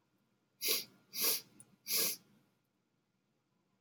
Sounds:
Sniff